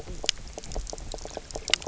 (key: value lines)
label: biophony, knock croak
recorder: SoundTrap 300